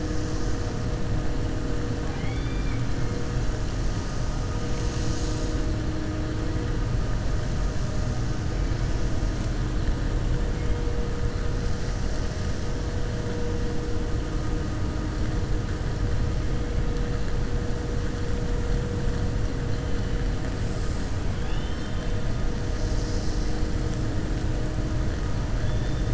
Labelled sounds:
21.3	22.1	killer whale, 1.6 to 4.2 kHz

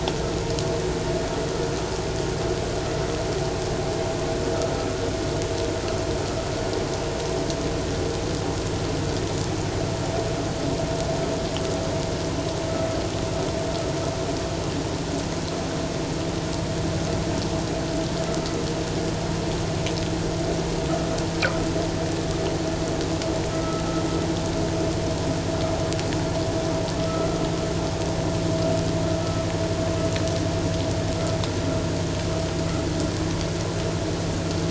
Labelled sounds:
23.5	23.8	vessel noise, 1.2 to 1.4 kHz
27.0	27.4	vessel noise, 1.2 to 1.4 kHz

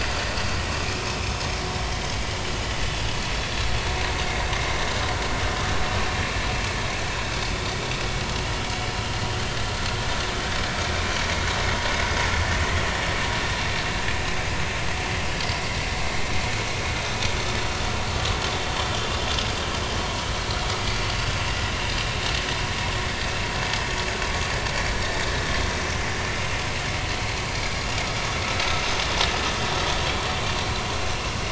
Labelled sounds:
18.1	18.4	vessel noise, 1.0 to 1.2 kHz
28.7	29.0	vessel noise, 3.6 to 6.2 kHz

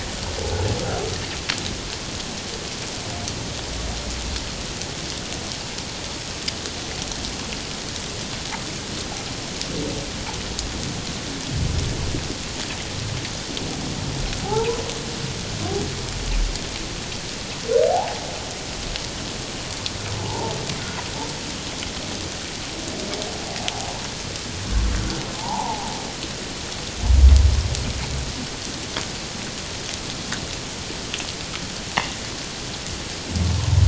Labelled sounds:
14.4	14.8	humpback whale, 0.78 to 1.1 kHz
17.9	18.2	humpback whale, 0.78 to 0.97 kHz
20.2	20.6	humpback whale, 0.81 to 1.0 kHz
25.4	25.9	humpback whale, 0.78 to 1.1 kHz

